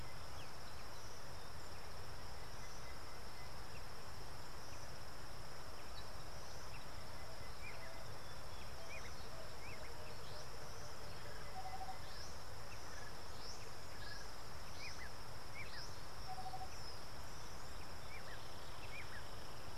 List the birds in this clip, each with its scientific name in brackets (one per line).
Tropical Boubou (Laniarius major)